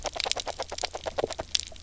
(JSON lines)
{"label": "biophony, knock croak", "recorder": "SoundTrap 300"}